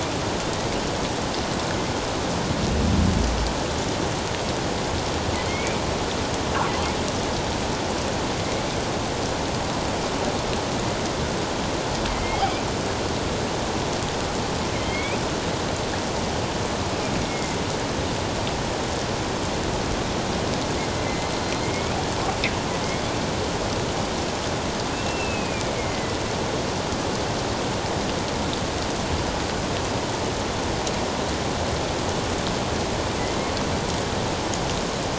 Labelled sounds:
5.5	5.8	killer whale, northern resident, A clan, AA subclan, A04 pod, 2.1 to 2.4 kHz
12.1	12.6	killer whale, northern resident, A clan, AA subclan, A04 pod, 2.0 to 2.5 kHz
14.8	15.2	killer whale, northern resident, A clan, AA subclan, A04 pod, 2.0 to 3.4 kHz
17.2	17.6	killer whale, northern resident, A clan, AA subclan, A04 pod, 2.0 to 2.2 kHz
21.6	21.9	killer whale, northern resident, A clan, AA subclan, A04 pod, 2.1 to 2.4 kHz
24.9	26.2	killer whale, northern resident, A clan, AA subclan, A04 pod, 1.9 to 2.8 kHz

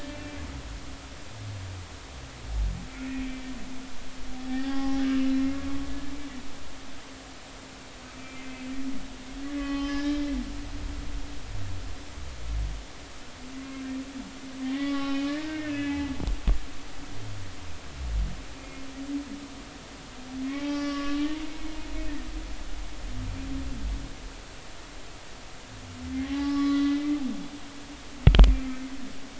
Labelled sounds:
0.0	0.4	humpback whale, 2.3 to 2.7 kHz
3.0	3.5	humpback whale, 2.3 to 2.7 kHz
4.5	5.4	humpback whale, 0.80 to 2.9 kHz
8.3	8.6	humpback whale, 2.0 to 2.1 kHz
9.4	10.2	humpback whale, 1.1 to 5.2 kHz
14.7	16.0	humpback whale, 0.80 to 3.1 kHz
18.6	18.8	humpback whale, 2.3 to 2.5 kHz
20.5	21.2	humpback whale, 0.80 to 5.9 kHz
26.2	27.0	humpback whale, 0.80 to 4.0 kHz

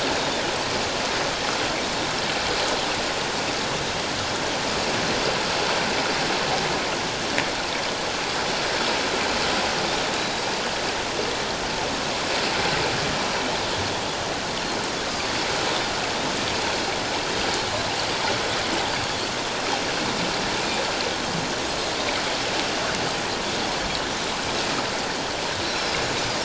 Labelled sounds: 10.2	10.4	Pacific white-sided dolphin, 3.8 to 4.0 kHz
15.1	15.3	Pacific white-sided dolphin, 4.4 to 5.0 kHz
17.7	17.9	Pacific white-sided dolphin, 3.9 to 4.2 kHz
25.6	25.9	Pacific white-sided dolphin, 3.9 to 4.4 kHz

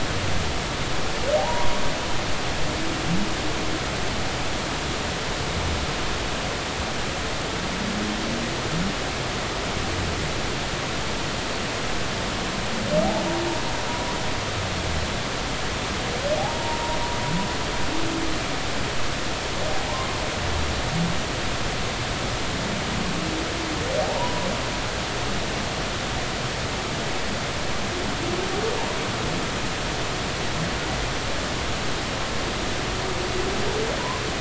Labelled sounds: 1.4	1.8	humpback whale, 0.80 to 1.1 kHz
16.4	17.0	humpback whale, 0.80 to 1.1 kHz
24.0	24.5	humpback whale, 0.80 to 1.1 kHz

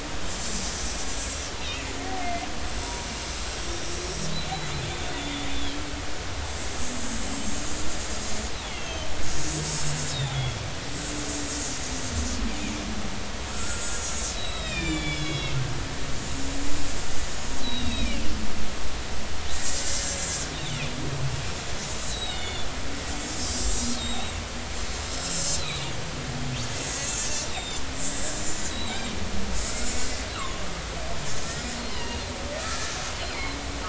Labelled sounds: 0.3	0.6	killer whale, Bigg's (transient), 7.2 to 7.4 kHz
1.1	1.3	killer whale, Bigg's (transient), 7.0 to 7.2 kHz
1.6	2.5	killer whale, Bigg's (transient), 2.0 to 2.9 kHz
2.8	3.8	killer whale, Bigg's (transient), 0.90 to 5.8 kHz
5.1	5.8	killer whale, Bigg's (transient), 3.0 to 3.8 kHz
8.6	9.7	killer whale, Bigg's (transient), 2.5 to 7.4 kHz
10.1	10.6	killer whale, Bigg's (transient), 3.3 to 4.0 kHz
13.5	15.6	killer whale, Bigg's (transient), 1.3 to 6.9 kHz
17.6	18.2	killer whale, Bigg's (transient), 2.2 to 4.1 kHz
19.9	20.2	killer whale, Bigg's (transient), 5.4 to 5.6 kHz
22.0	22.7	killer whale, Bigg's (transient), 2.1 to 4.1 kHz
23.3	24.4	killer whale, Bigg's (transient), 3.6 to 7.6 kHz
25.6	25.9	killer whale, Bigg's (transient), 3.5 to 4.2 kHz
27.0	27.8	killer whale, Bigg's (transient), 2.5 to 7.4 kHz
28.7	29.1	killer whale, Bigg's (transient), 2.1 to 4.1 kHz
30.3	30.6	killer whale, Bigg's (transient), 0.99 to 4.1 kHz
31.8	33.6	killer whale, Bigg's (transient), 0.90 to 8.0 kHz

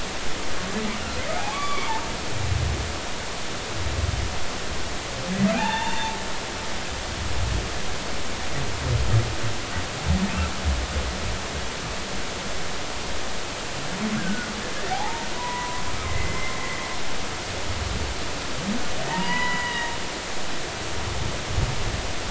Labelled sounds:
1.5	1.9	humpback whale, 1.0 to 2.4 kHz
5.5	6.2	humpback whale, 0.80 to 3.6 kHz
14.2	14.5	humpback whale, 1.4 to 1.7 kHz
14.9	16.5	humpback whale, 0.80 to 2.2 kHz
19.0	19.9	humpback whale, 0.80 to 3.0 kHz

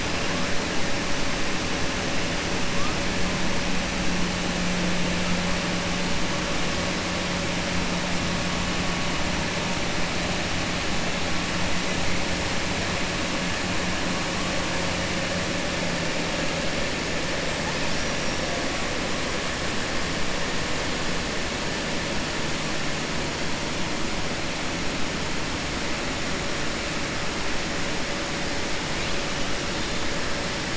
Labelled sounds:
17.9	18.4	killer whale, 5.2 to 6.4 kHz

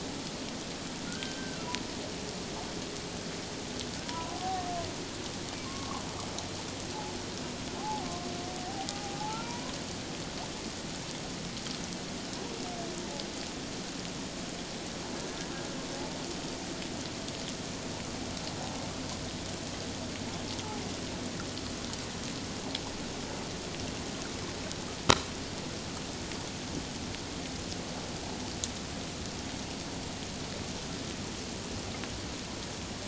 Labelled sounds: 1.1	1.7	humpback whale, 1.3 to 1.6 kHz
4.0	4.6	humpback whale, 0.78 to 1.1 kHz
5.6	6.0	humpback whale, 0.97 to 1.2 kHz
7.8	8.1	humpback whale, 0.78 to 0.94 kHz
9.2	9.7	humpback whale, 0.81 to 1.1 kHz

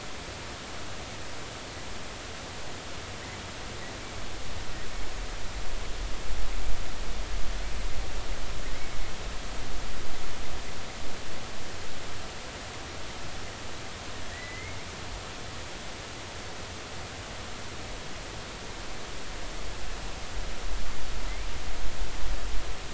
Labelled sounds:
8.6	9.0	killer whale, offshore, 1.8 to 2.3 kHz
14.3	14.8	killer whale, offshore, 1.7 to 2.3 kHz

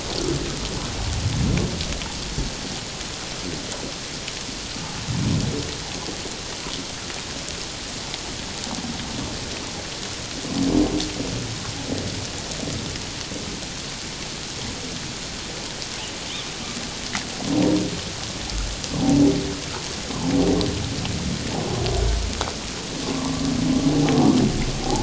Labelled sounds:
23.0	23.3	humpback whale, 0.88 to 1.2 kHz

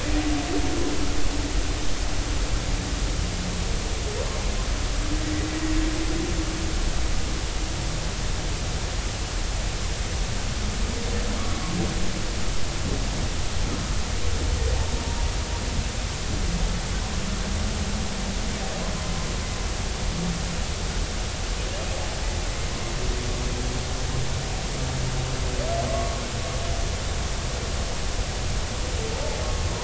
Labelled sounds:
25.9	26.2	humpback whale, 1.0 to 1.2 kHz

